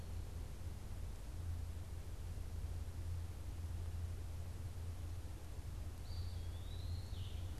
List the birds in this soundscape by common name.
Eastern Wood-Pewee